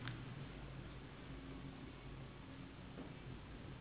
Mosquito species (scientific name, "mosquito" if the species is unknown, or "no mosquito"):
Anopheles gambiae s.s.